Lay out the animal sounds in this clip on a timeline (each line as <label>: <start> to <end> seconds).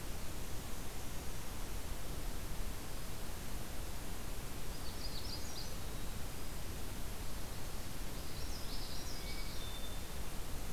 Black-and-white Warbler (Mniotilta varia): 0.0 to 1.7 seconds
Magnolia Warbler (Setophaga magnolia): 4.5 to 5.9 seconds
Common Yellowthroat (Geothlypis trichas): 7.8 to 10.0 seconds
Hermit Thrush (Catharus guttatus): 9.0 to 10.6 seconds